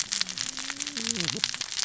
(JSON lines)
{"label": "biophony, cascading saw", "recorder": "SoundTrap 600 or HydroMoth"}